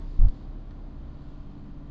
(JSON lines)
{"label": "anthrophony, boat engine", "recorder": "SoundTrap 300"}